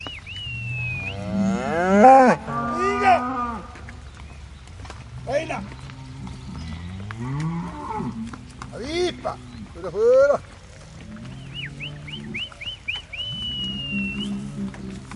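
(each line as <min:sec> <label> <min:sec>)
0:00.0 A man whistles. 0:01.3
0:00.0 A man is driving a herd of cows. 0:15.2
0:01.2 A cow moos. 0:02.4
0:02.4 A man calls while driving cows. 0:06.2
0:06.0 Cows moo in the distance. 0:08.7
0:08.7 A man shouts commands in a Hispanic accent. 0:10.4
0:10.4 A herd of cows is mooing in the background. 0:15.2
0:10.4 A man whistles. 0:15.2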